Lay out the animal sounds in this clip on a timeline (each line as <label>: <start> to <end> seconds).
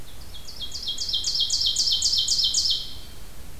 Ovenbird (Seiurus aurocapilla): 0.0 to 3.4 seconds